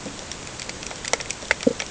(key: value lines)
label: ambient
recorder: HydroMoth